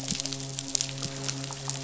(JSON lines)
{"label": "biophony, midshipman", "recorder": "SoundTrap 500"}